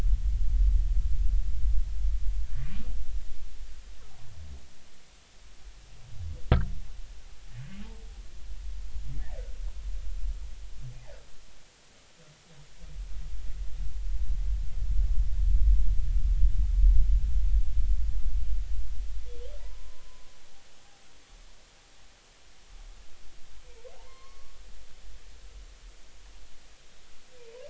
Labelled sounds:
19.6	20.2	humpback whale, 0.86 to 1.1 kHz
23.9	24.6	humpback whale, 0.80 to 4.4 kHz

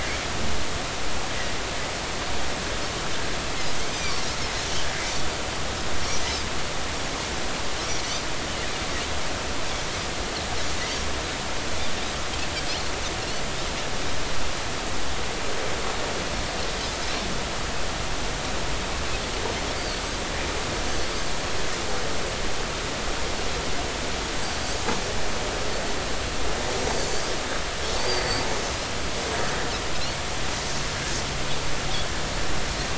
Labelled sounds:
3.9	4.2	Pacific white-sided dolphin, 4.4 to 5.0 kHz
6.0	6.3	Pacific white-sided dolphin, 5.4 to 6.0 kHz
19.7	20.0	Pacific white-sided dolphin, 4.2 to 4.8 kHz

